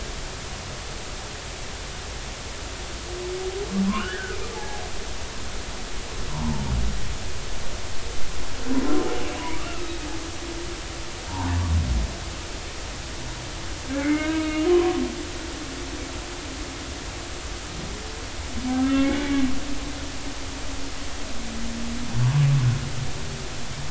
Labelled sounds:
3.9	4.8	humpback whale, 0.80 to 3.1 kHz
6.3	6.7	humpback whale, 0.83 to 1.1 kHz
9.4	9.9	humpback whale, 0.90 to 2.8 kHz
11.3	11.5	humpback whale, 0.80 to 1.2 kHz
14.0	15.0	humpback whale, 0.99 to 2.9 kHz
18.8	19.2	humpback whale, 1.3 to 2.3 kHz

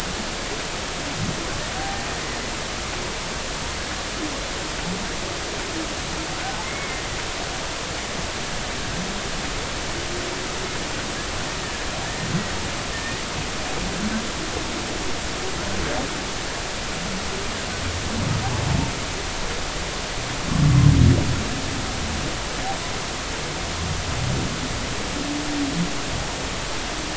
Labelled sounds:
1.8	2.0	humpback whale, 0.80 to 0.83 kHz
6.6	7.0	humpback whale, 2.0 to 2.3 kHz
12.9	13.2	humpback whale, 1.8 to 2.0 kHz

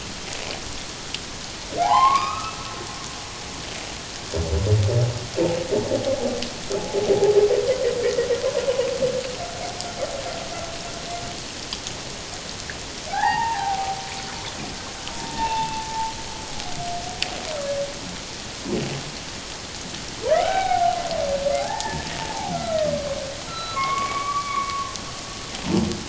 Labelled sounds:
1.8	2.8	humpback whale, 0.78 to 3.9 kHz
6.8	7.0	humpback whale, 0.81 to 0.91 kHz
8.0	8.3	humpback whale, 1.8 to 2.0 kHz
13.1	14.0	humpback whale, 0.78 to 2.8 kHz
15.2	15.9	humpback whale, 0.81 to 2.8 kHz
20.3	21.0	humpback whale, 0.78 to 3.9 kHz
21.6	23.2	humpback whale, 0.78 to 2.1 kHz
23.5	25.0	humpback whale, 1.0 to 4.0 kHz

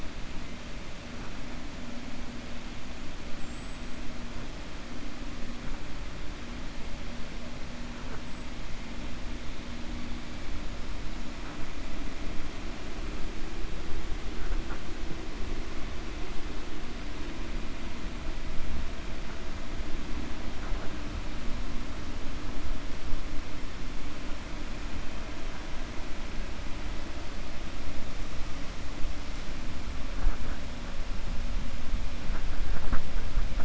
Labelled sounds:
3.3	4.0	killer whale, 7.3 to 8.0 kHz

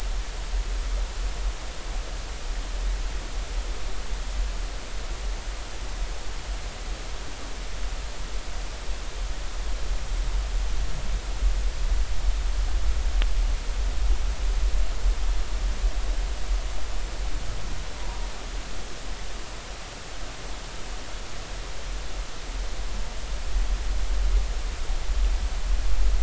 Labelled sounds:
18.0	18.2	humpback whale, 0.90 to 1.1 kHz

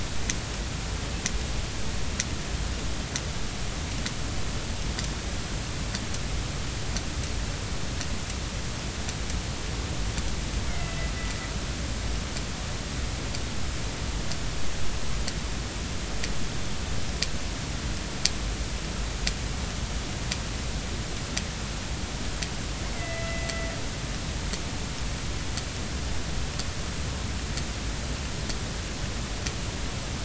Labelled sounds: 10.7	11.1	killer whale, northern resident, A clan, AB subclan, B01 pod, call N01ii, 2.0 to 2.3 kHz
22.9	23.7	killer whale, northern resident, A clan, AB subclan, B01 pod, call N01ii, 1.9 to 2.2 kHz

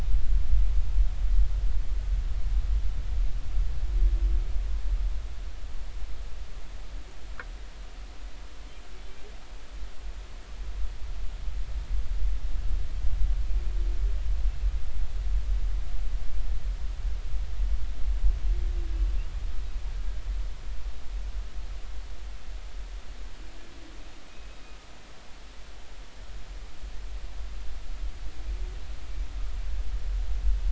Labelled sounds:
24.3	24.6	humpback whale, 2.4 to 2.7 kHz

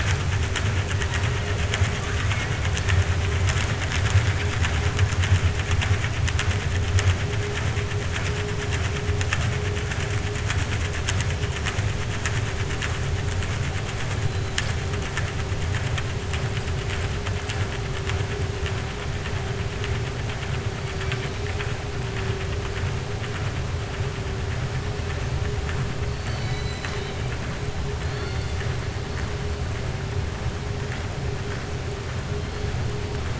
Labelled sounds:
26.1	27.2	killer whale, 1.1 to 7.8 kHz

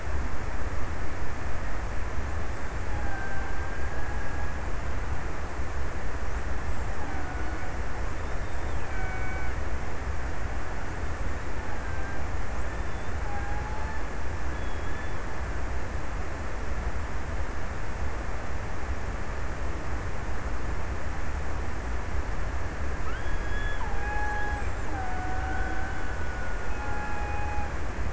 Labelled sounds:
2.1	5.2	killer whale, Bigg's (transient), 0.66 to 2.0 kHz
6.4	9.9	killer whale, Bigg's (transient), 0.48 to 3.8 kHz
11.5	12.6	killer whale, Bigg's (transient), 0.45 to 1.8 kHz
12.9	14.6	killer whale, Bigg's (transient), 0.55 to 1.8 kHz
22.6	28.1	killer whale, Bigg's (transient), 0.64 to 4.0 kHz

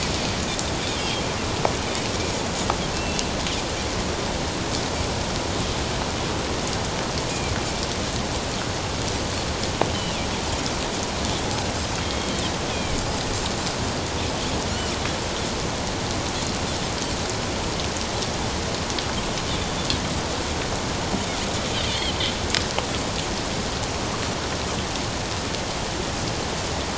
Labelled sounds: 2.9	3.3	Pacific white-sided dolphin, 2.6 to 3.1 kHz
9.9	10.2	Pacific white-sided dolphin, 2.7 to 3.1 kHz
12.0	12.3	Pacific white-sided dolphin, 2.1 to 3.3 kHz
12.7	13.0	Pacific white-sided dolphin, 2.2 to 3.5 kHz
19.5	19.7	Pacific white-sided dolphin, 3.3 to 3.7 kHz
21.7	22.1	Pacific white-sided dolphin, 2.9 to 3.3 kHz

